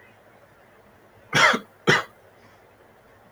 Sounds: Cough